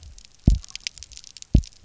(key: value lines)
label: biophony, double pulse
recorder: SoundTrap 300